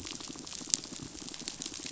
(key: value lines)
label: biophony, pulse
recorder: SoundTrap 500